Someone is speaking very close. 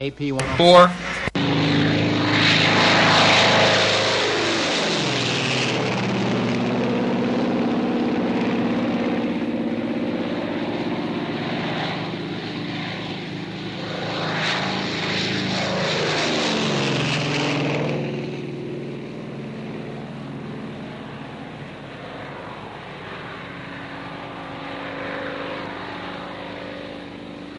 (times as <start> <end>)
0.0 1.0